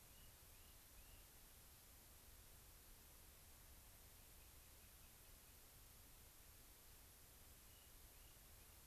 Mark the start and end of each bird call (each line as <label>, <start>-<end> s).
Rock Wren (Salpinctes obsoletus), 0.0-1.3 s
Rock Wren (Salpinctes obsoletus), 4.2-5.5 s
Rock Wren (Salpinctes obsoletus), 7.6-8.8 s